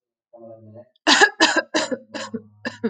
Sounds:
Cough